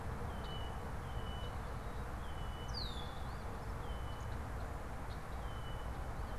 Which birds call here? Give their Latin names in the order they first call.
Agelaius phoeniceus, Sayornis phoebe